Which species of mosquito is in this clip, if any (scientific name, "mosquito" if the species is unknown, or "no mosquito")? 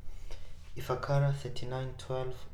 Anopheles arabiensis